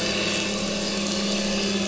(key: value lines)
label: anthrophony, boat engine
recorder: SoundTrap 500